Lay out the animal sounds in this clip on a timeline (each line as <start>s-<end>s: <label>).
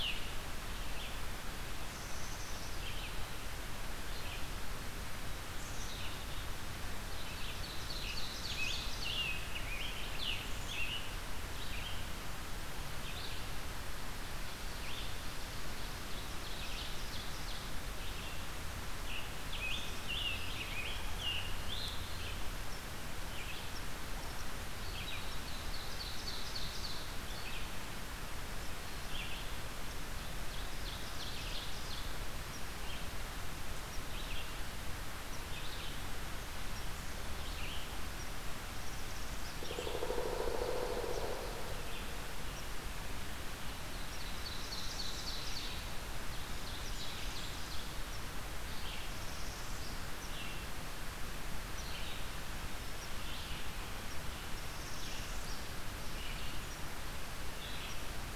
0.0s-6.3s: Red-eyed Vireo (Vireo olivaceus)
1.6s-2.8s: Black-capped Chickadee (Poecile atricapillus)
5.5s-6.2s: Black-capped Chickadee (Poecile atricapillus)
7.1s-9.1s: Ovenbird (Seiurus aurocapilla)
8.0s-11.1s: Scarlet Tanager (Piranga olivacea)
11.3s-58.4s: Red-eyed Vireo (Vireo olivaceus)
15.8s-17.7s: Ovenbird (Seiurus aurocapilla)
18.9s-22.1s: Scarlet Tanager (Piranga olivacea)
19.7s-20.1s: Black-capped Chickadee (Poecile atricapillus)
25.4s-27.2s: Ovenbird (Seiurus aurocapilla)
29.9s-32.2s: Ovenbird (Seiurus aurocapilla)
38.5s-39.6s: Northern Parula (Setophaga americana)
39.5s-41.7s: Pileated Woodpecker (Dryocopus pileatus)
43.7s-45.7s: Ovenbird (Seiurus aurocapilla)
46.1s-48.0s: Ovenbird (Seiurus aurocapilla)
48.9s-50.2s: Northern Parula (Setophaga americana)
54.3s-55.7s: Northern Parula (Setophaga americana)